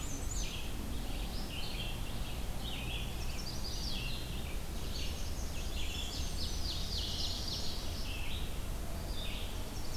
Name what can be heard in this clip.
Black-and-white Warbler, Red-eyed Vireo, American Robin, Chestnut-sided Warbler, Blackburnian Warbler, Ovenbird